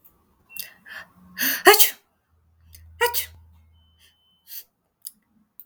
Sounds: Sneeze